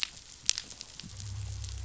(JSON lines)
{"label": "anthrophony, boat engine", "recorder": "SoundTrap 500"}